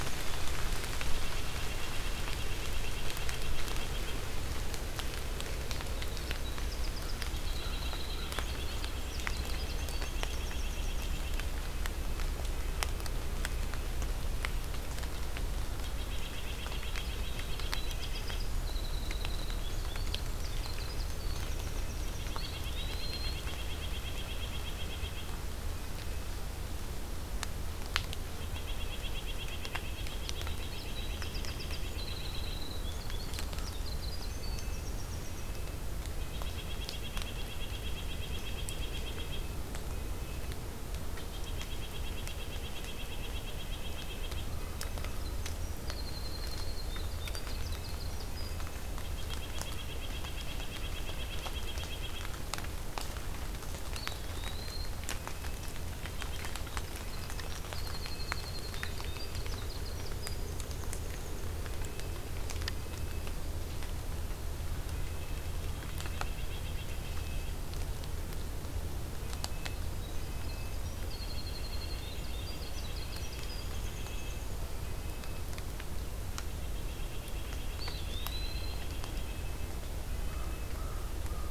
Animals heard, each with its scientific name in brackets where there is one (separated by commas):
Winter Wren (Troglodytes hiemalis), American Crow (Corvus brachyrhynchos), White-breasted Nuthatch (Sitta carolinensis), Red-breasted Nuthatch (Sitta canadensis), Eastern Wood-Pewee (Contopus virens)